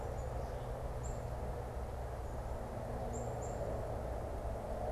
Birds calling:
Black-capped Chickadee (Poecile atricapillus)

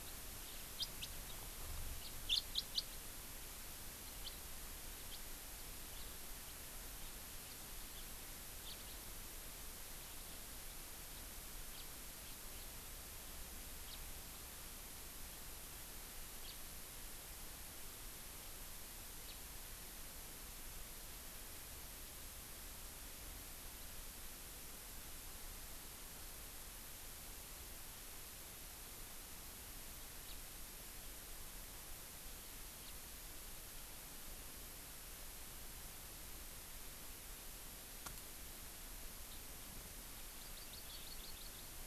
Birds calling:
Hawaii Amakihi (Chlorodrepanis virens), House Finch (Haemorhous mexicanus)

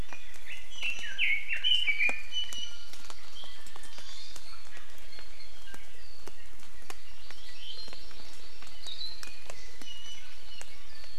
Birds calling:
Iiwi (Drepanis coccinea), Hawaii Amakihi (Chlorodrepanis virens), Red-billed Leiothrix (Leiothrix lutea)

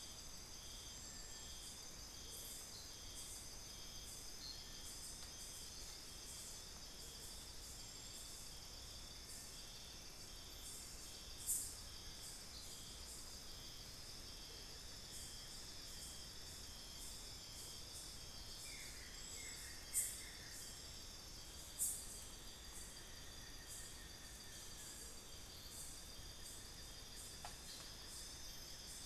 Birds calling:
Buff-throated Woodcreeper (Xiphorhynchus guttatus)

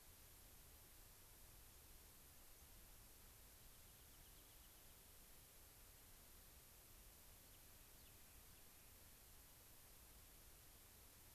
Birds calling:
Rock Wren (Salpinctes obsoletus), unidentified bird

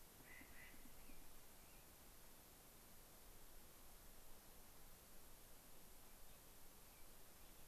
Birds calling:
American Robin (Turdus migratorius), Clark's Nutcracker (Nucifraga columbiana)

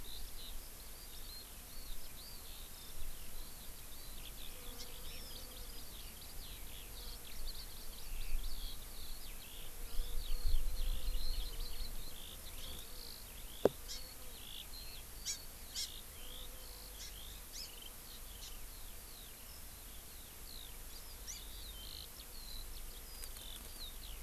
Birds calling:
Hawaii Amakihi (Chlorodrepanis virens), Eurasian Skylark (Alauda arvensis)

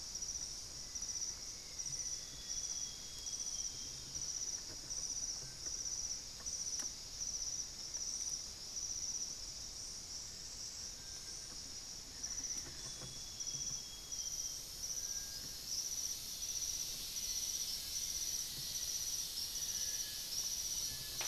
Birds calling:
Black-faced Antthrush (Formicarius analis), Amazonian Grosbeak (Cyanoloxia rothschildii), Amazonian Barred-Woodcreeper (Dendrocolaptes certhia), Little Tinamou (Crypturellus soui)

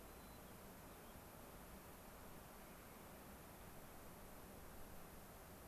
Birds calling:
White-crowned Sparrow (Zonotrichia leucophrys)

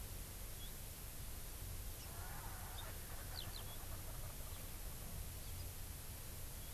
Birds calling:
Eurasian Skylark (Alauda arvensis), Erckel's Francolin (Pternistis erckelii)

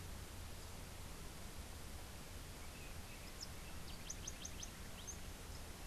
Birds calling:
House Wren (Troglodytes aedon)

